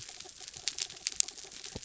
{"label": "anthrophony, mechanical", "recorder": "SoundTrap 300"}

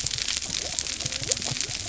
{"label": "biophony", "recorder": "SoundTrap 300"}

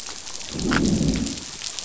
{"label": "biophony, growl", "recorder": "SoundTrap 500"}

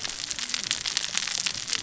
{"label": "biophony, cascading saw", "recorder": "SoundTrap 600 or HydroMoth"}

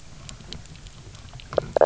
{"label": "biophony, knock croak", "recorder": "SoundTrap 300"}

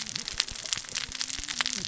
{"label": "biophony, cascading saw", "recorder": "SoundTrap 600 or HydroMoth"}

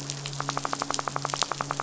{"label": "biophony, midshipman", "recorder": "SoundTrap 500"}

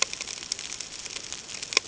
{"label": "ambient", "recorder": "HydroMoth"}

